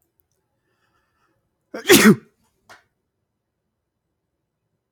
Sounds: Sneeze